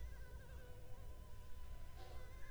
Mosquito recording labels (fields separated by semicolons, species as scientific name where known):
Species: Culex pipiens complex; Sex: female; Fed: unfed; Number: one; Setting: cup